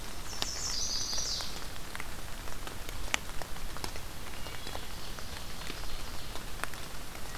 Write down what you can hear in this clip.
Chestnut-sided Warbler, Wood Thrush, Ovenbird